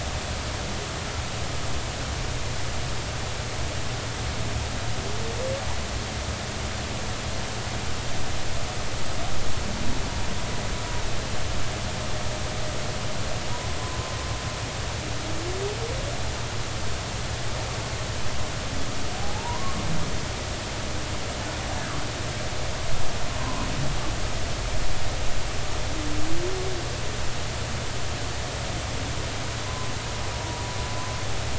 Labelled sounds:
19.2	19.7	humpback whale, 0.80 to 1.2 kHz
23.3	23.7	humpback whale, 0.93 to 1.1 kHz
29.6	29.9	humpback whale, 0.96 to 1.1 kHz
30.3	30.7	humpback whale, 0.90 to 0.99 kHz

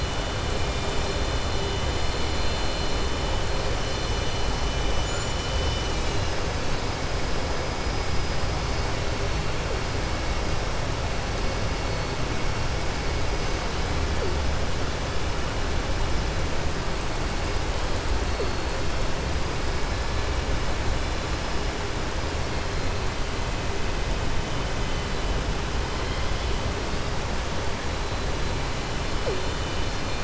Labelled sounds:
25.9	26.5	killer whale, southern resident, 2.1 to 4.3 kHz

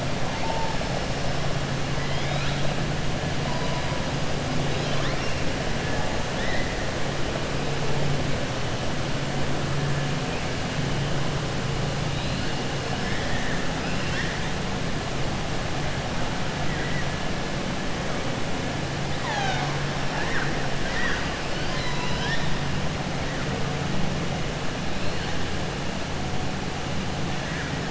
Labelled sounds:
2.0	2.6	killer whale, 1.3 to 5.2 kHz
4.7	5.4	killer whale, 1.0 to 6.2 kHz
13.7	14.4	killer whale, 1.1 to 5.8 kHz
20.8	21.3	killer whale, 1.1 to 5.8 kHz
21.8	22.5	killer whale, 0.97 to 5.9 kHz

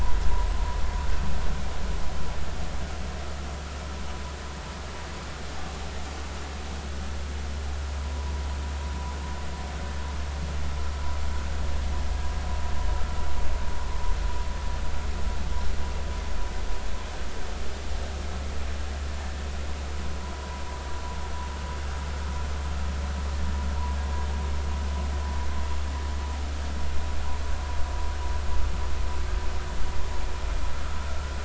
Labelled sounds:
8.0	8.3	vessel noise, 0.93 to 1.1 kHz
20.2	20.6	vessel noise, 0.90 to 1.1 kHz

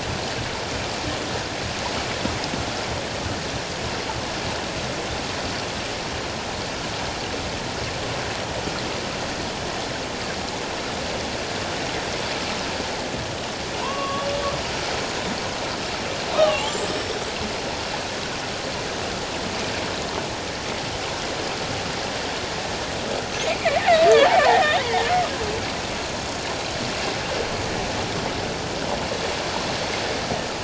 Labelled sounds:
13.8	14.3	killer whale, 0.88 to 2.8 kHz
16.3	17.2	killer whale, 0.94 to 8.0 kHz
23.4	24.8	killer whale, 0.78 to 2.7 kHz

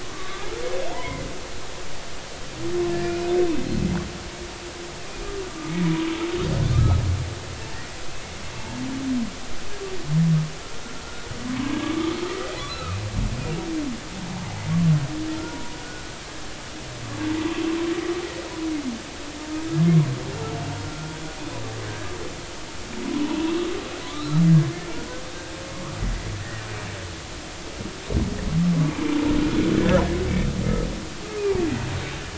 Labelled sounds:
0.1	1.2	humpback whale, 0.83 to 1.3 kHz
3.0	3.7	humpback whale, 2.3 to 2.7 kHz
5.7	5.9	humpback whale, 2.1 to 2.3 kHz
6.7	7.0	humpback whale, 1.2 to 1.4 kHz
7.7	8.0	humpback whale, 1.8 to 2.0 kHz
12.7	13.0	humpback whale, 1.2 to 2.7 kHz
15.4	16.0	humpback whale, 0.90 to 1.6 kHz
20.8	21.1	humpback whale, 1.3 to 1.4 kHz
21.8	22.1	humpback whale, 1.5 to 1.7 kHz
23.0	23.7	humpback whale, 0.83 to 1.2 kHz
24.1	24.4	humpback whale, 1.1 to 4.2 kHz
26.4	26.7	humpback whale, 1.7 to 2.0 kHz
29.7	30.0	humpback whale, 1.6 to 1.8 kHz

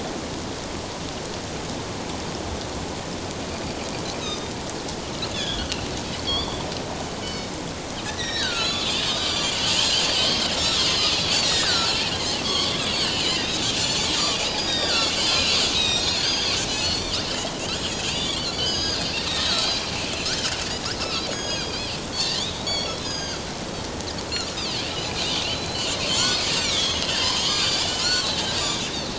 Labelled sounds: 4.2	4.5	Pacific white-sided dolphin, 3.6 to 4.0 kHz
5.3	6.6	Pacific white-sided dolphin, 2.6 to 4.8 kHz
7.2	13.4	Pacific white-sided dolphin, 0.94 to 7.3 kHz
14.2	17.3	Pacific white-sided dolphin, 1.2 to 8.0 kHz
17.6	23.4	Pacific white-sided dolphin, 1.2 to 6.9 kHz
25.5	29.0	Pacific white-sided dolphin, 1.1 to 7.6 kHz

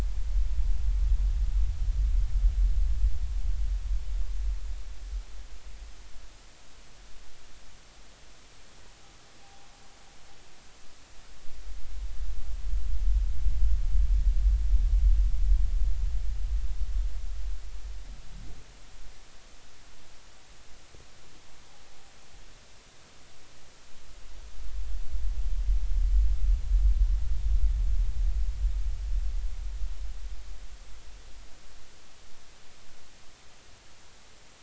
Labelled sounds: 9.4	9.7	humpback whale, 0.80 to 0.96 kHz

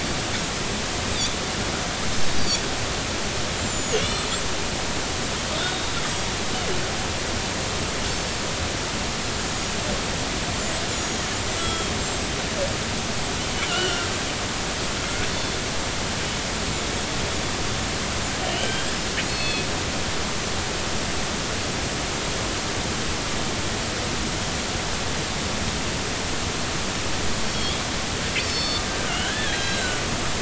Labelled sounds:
3.6	4.0	killer whale, northern resident, 6.1 to 7.4 kHz
3.9	4.3	killer whale, northern resident, G clan, call N40, 2.7 to 4.3 kHz
5.6	5.9	killer whale, northern resident, G clan, call N40, 3.4 to 3.8 kHz
10.9	12.7	killer whale, northern resident, 1.3 to 8.0 kHz
13.5	14.1	killer whale, northern resident, G clan, call N40, 1.3 to 6.0 kHz
15.3	15.6	killer whale, northern resident, G clan, GG subclan, call N41, 3.4 to 3.6 kHz
18.5	19.0	killer whale, northern resident, G clan, call N40, 1.5 to 3.3 kHz
19.3	19.7	killer whale, northern resident, G clan, GG subclan, call N41, 2.5 to 4.4 kHz
27.4	27.8	killer whale, northern resident, G clan, GG subclan, call N45, 3.2 to 5.6 kHz
28.5	28.8	killer whale, northern resident, G clan, GG subclan, call N41, 3.5 to 5.4 kHz
28.6	30.0	killer whale, northern resident, 1.2 to 4.1 kHz

